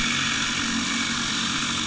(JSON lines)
{"label": "anthrophony, boat engine", "recorder": "HydroMoth"}